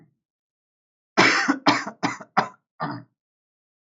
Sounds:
Cough